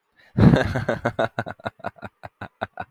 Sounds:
Laughter